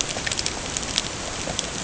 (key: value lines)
label: ambient
recorder: HydroMoth